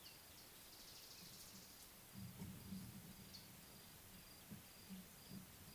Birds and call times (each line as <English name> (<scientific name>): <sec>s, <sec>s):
Mariqua Sunbird (Cinnyris mariquensis): 1.3s